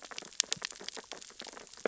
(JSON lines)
{"label": "biophony, sea urchins (Echinidae)", "recorder": "SoundTrap 600 or HydroMoth"}